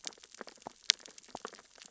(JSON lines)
{"label": "biophony, sea urchins (Echinidae)", "recorder": "SoundTrap 600 or HydroMoth"}